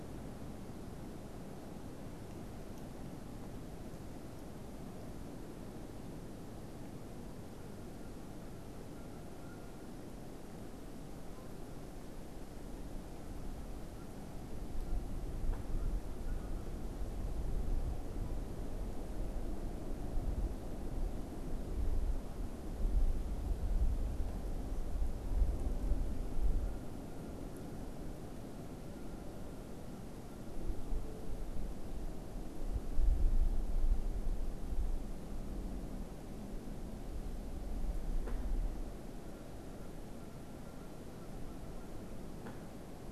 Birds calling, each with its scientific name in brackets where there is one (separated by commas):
Canada Goose (Branta canadensis)